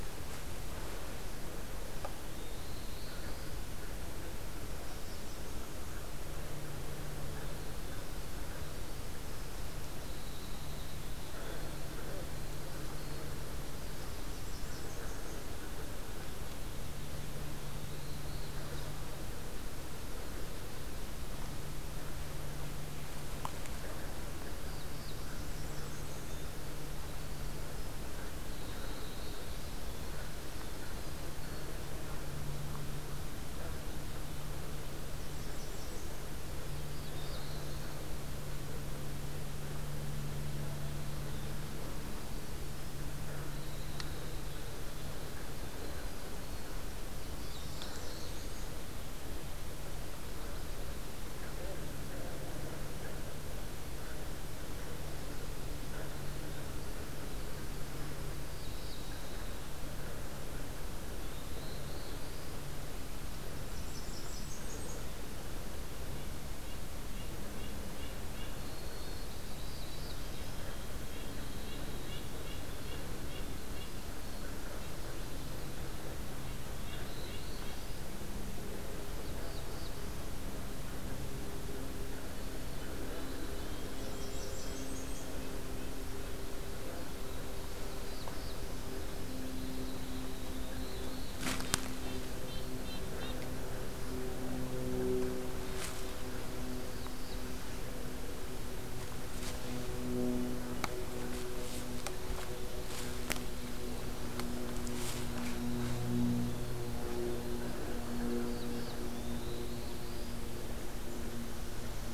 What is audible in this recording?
Black-throated Blue Warbler, Blackburnian Warbler, Winter Wren, Red-breasted Nuthatch